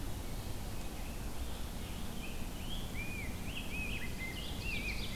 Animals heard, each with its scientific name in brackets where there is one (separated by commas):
Ovenbird (Seiurus aurocapilla), Rose-breasted Grosbeak (Pheucticus ludovicianus), Scarlet Tanager (Piranga olivacea)